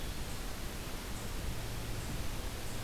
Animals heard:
forest ambience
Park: Hubbard Brook Experimental Forest